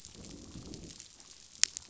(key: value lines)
label: biophony, growl
recorder: SoundTrap 500